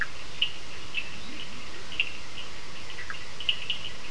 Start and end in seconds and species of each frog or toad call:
0.0	4.1	Cochran's lime tree frog
1.0	2.0	Leptodactylus latrans
10:00pm

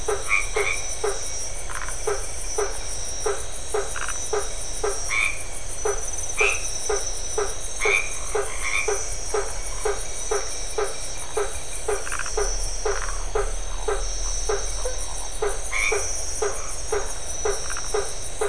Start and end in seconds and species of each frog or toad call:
0.0	1.1	white-edged tree frog
0.0	18.4	blacksmith tree frog
1.6	2.0	Phyllomedusa distincta
3.9	4.2	Phyllomedusa distincta
4.9	9.3	white-edged tree frog
12.0	13.2	Phyllomedusa distincta
15.5	16.2	white-edged tree frog
17.6	17.9	Phyllomedusa distincta
9:30pm

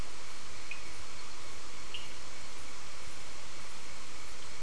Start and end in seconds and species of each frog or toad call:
1.8	2.4	Cochran's lime tree frog
7:15pm

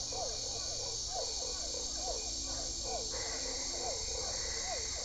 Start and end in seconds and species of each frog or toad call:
0.0	5.0	Usina tree frog
0.0	5.0	Physalaemus cuvieri
2.8	5.0	Boana albopunctata
7:00pm

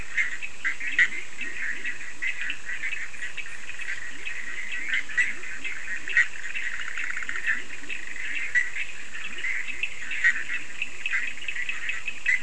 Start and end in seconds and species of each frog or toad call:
0.0	12.4	Bischoff's tree frog
0.0	12.4	Cochran's lime tree frog
0.1	12.4	Leptodactylus latrans
2:15am

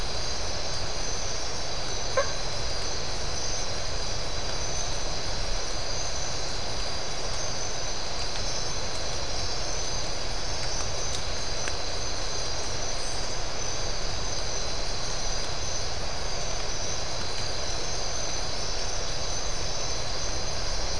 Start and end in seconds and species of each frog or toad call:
2.0	2.4	blacksmith tree frog
3:45am

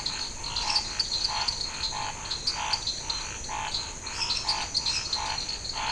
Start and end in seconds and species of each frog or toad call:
0.0	5.9	dwarf tree frog
0.0	5.9	Scinax fuscovarius
0.5	1.2	lesser tree frog
4.0	5.4	lesser tree frog
8:15pm

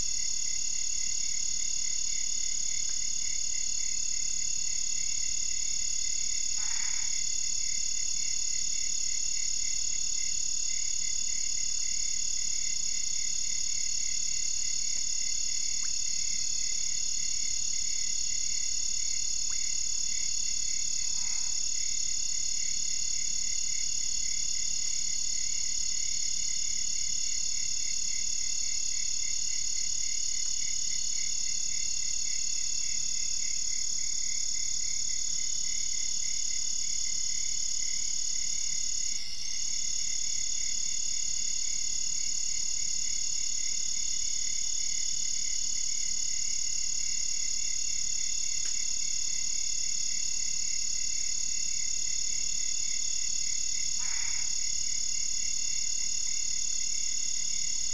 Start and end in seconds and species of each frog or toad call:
6.6	7.1	Boana albopunctata
21.0	21.6	Boana albopunctata
53.9	54.5	Boana albopunctata
12:00am

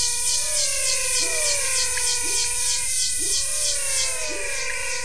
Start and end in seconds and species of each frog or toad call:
0.0	5.0	pepper frog
0.0	5.0	menwig frog
1.9	2.3	pointedbelly frog
6:45pm

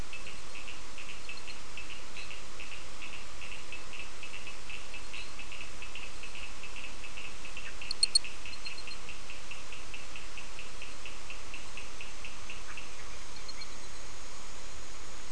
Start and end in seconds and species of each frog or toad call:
0.0	13.1	Cochran's lime tree frog
2.0	2.5	fine-lined tree frog
4.9	5.5	fine-lined tree frog
6:30pm

